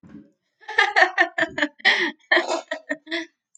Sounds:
Laughter